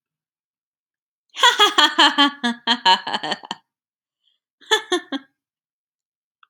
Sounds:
Laughter